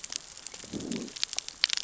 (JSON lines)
{"label": "biophony, growl", "recorder": "SoundTrap 600 or HydroMoth"}